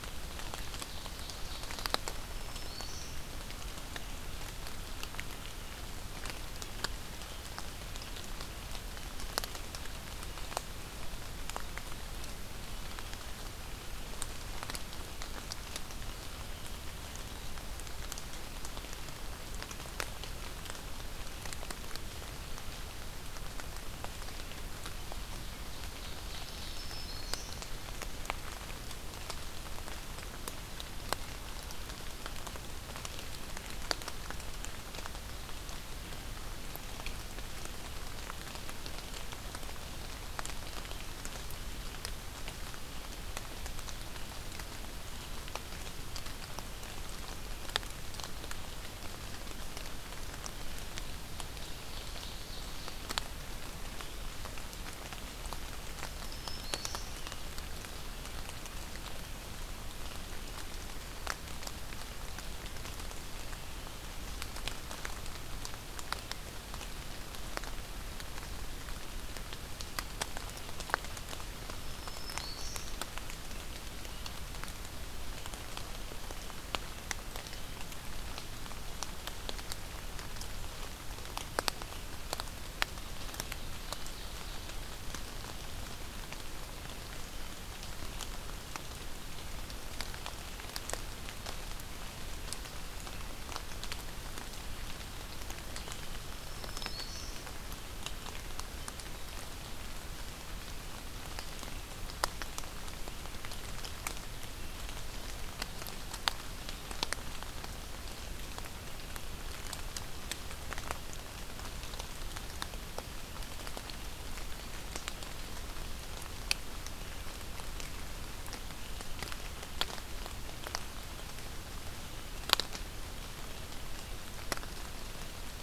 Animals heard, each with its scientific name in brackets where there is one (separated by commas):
Ovenbird (Seiurus aurocapilla), Black-throated Green Warbler (Setophaga virens)